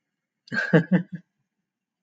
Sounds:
Laughter